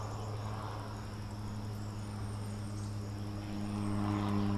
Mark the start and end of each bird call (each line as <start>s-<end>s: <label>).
0.0s-4.6s: Tufted Titmouse (Baeolophus bicolor)